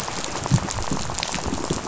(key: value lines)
label: biophony, rattle
recorder: SoundTrap 500